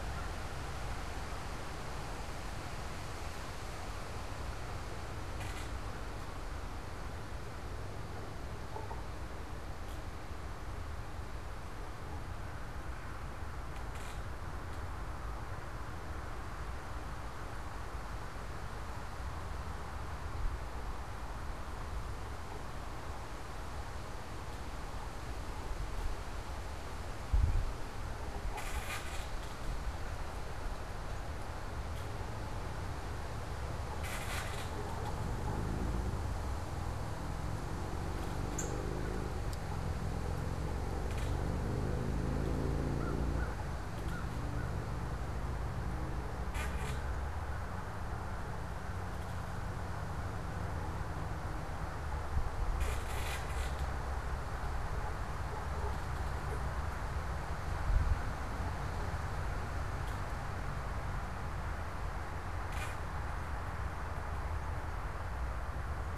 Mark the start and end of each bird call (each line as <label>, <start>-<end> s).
Northern Cardinal (Cardinalis cardinalis), 38.6-38.9 s